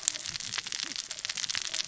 {"label": "biophony, cascading saw", "recorder": "SoundTrap 600 or HydroMoth"}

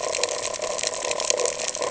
{"label": "ambient", "recorder": "HydroMoth"}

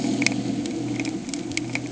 {"label": "anthrophony, boat engine", "recorder": "HydroMoth"}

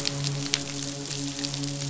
{"label": "biophony, midshipman", "recorder": "SoundTrap 500"}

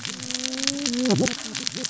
{"label": "biophony, cascading saw", "recorder": "SoundTrap 600 or HydroMoth"}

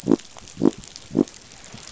{"label": "biophony", "recorder": "SoundTrap 500"}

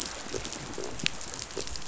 {"label": "biophony", "recorder": "SoundTrap 500"}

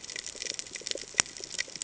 {"label": "ambient", "recorder": "HydroMoth"}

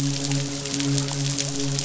{"label": "biophony, midshipman", "recorder": "SoundTrap 500"}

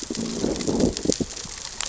{"label": "biophony, growl", "recorder": "SoundTrap 600 or HydroMoth"}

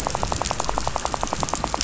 {"label": "biophony, rattle", "recorder": "SoundTrap 500"}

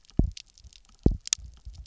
{"label": "biophony, double pulse", "recorder": "SoundTrap 300"}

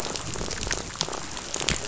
{"label": "biophony, rattle", "recorder": "SoundTrap 500"}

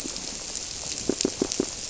{"label": "biophony, squirrelfish (Holocentrus)", "recorder": "SoundTrap 300"}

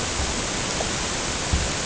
{"label": "ambient", "recorder": "HydroMoth"}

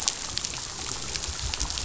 {"label": "biophony", "recorder": "SoundTrap 500"}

